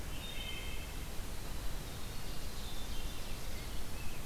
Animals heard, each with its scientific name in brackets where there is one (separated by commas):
Hermit Thrush (Catharus guttatus), Wood Thrush (Hylocichla mustelina), Rose-breasted Grosbeak (Pheucticus ludovicianus), Winter Wren (Troglodytes hiemalis)